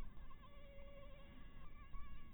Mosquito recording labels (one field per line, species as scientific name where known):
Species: Anopheles harrisoni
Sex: female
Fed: blood-fed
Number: one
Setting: cup